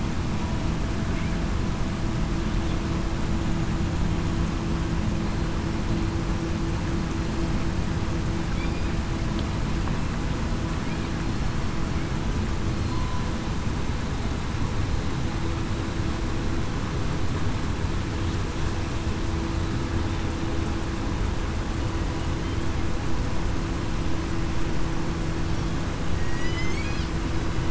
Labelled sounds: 26.1	26.8	killer whale, southern resident, 1.9 to 3.1 kHz

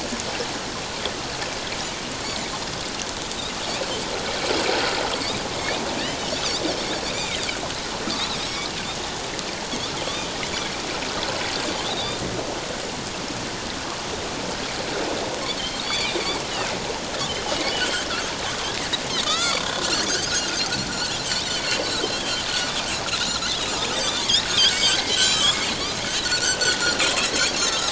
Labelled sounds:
5.6	5.8	Pacific white-sided dolphin, 2.1 to 2.5 kHz
7.1	7.4	Pacific white-sided dolphin, 2.0 to 2.5 kHz
8.2	8.5	Pacific white-sided dolphin, 3.5 to 4.5 kHz
10.0	10.3	Pacific white-sided dolphin, 2.9 to 3.7 kHz
15.8	16.2	Pacific white-sided dolphin, 4.3 to 4.9 kHz
17.7	18.0	Pacific white-sided dolphin, 2.7 to 3.3 kHz
19.2	19.7	Pacific white-sided dolphin, 0.97 to 7.1 kHz
20.1	20.3	Pacific white-sided dolphin, 4.4 to 5.1 kHz
22.0	22.3	Pacific white-sided dolphin, 3.1 to 3.4 kHz
23.9	25.7	Pacific white-sided dolphin, 1.0 to 7.7 kHz
26.2	26.6	Pacific white-sided dolphin, 1.4 to 6.4 kHz
27.2	27.9	Pacific white-sided dolphin, 3.8 to 6.7 kHz

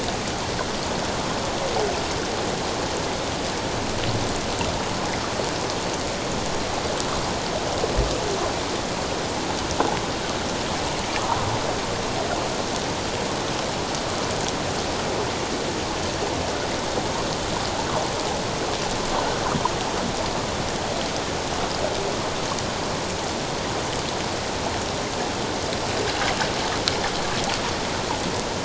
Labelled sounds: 11.2	11.4	water noise, 0.88 to 1.3 kHz

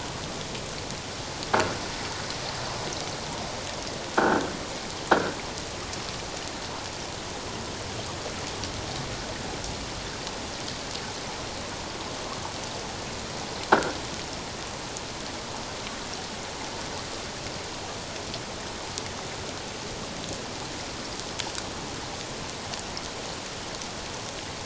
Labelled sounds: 4.2	4.5	croaking sound likely from a nearby submerged object, 1.3 to 1.7 kHz
5.1	5.4	croaking sound likely from a nearby submerged object, 1.3 to 1.7 kHz
13.7	14.0	croaking sound likely from a nearby submerged object, 1.3 to 1.7 kHz

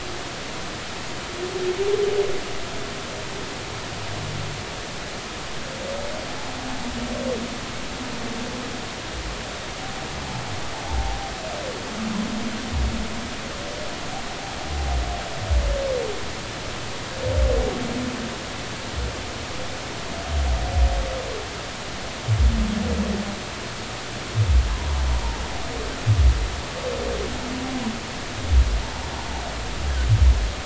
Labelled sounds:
10.9	11.2	humpback whale, 0.80 to 0.96 kHz

